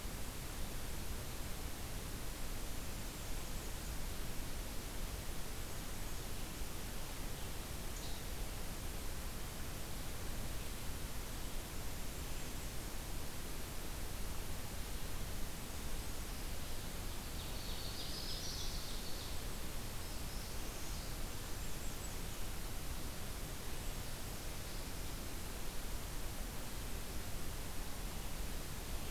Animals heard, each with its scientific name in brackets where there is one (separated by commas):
Least Flycatcher (Empidonax minimus), Ovenbird (Seiurus aurocapilla), Northern Parula (Setophaga americana), Blackburnian Warbler (Setophaga fusca)